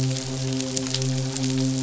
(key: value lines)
label: biophony, midshipman
recorder: SoundTrap 500